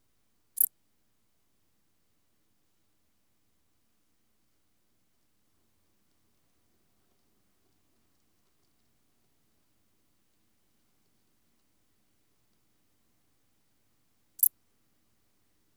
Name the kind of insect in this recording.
orthopteran